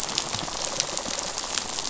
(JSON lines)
{"label": "biophony, rattle", "recorder": "SoundTrap 500"}